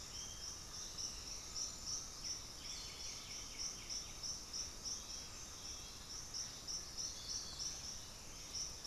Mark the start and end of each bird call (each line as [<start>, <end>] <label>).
[0.00, 0.50] Bluish-fronted Jacamar (Galbula cyanescens)
[0.30, 2.60] Black-throated Antbird (Myrmophylax atrothorax)
[0.50, 2.60] Undulated Tinamou (Crypturellus undulatus)
[2.10, 4.40] White-winged Becard (Pachyramphus polychopterus)